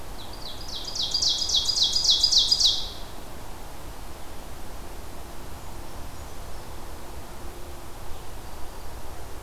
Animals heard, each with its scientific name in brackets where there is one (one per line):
Brown Creeper (Certhia americana)
Ovenbird (Seiurus aurocapilla)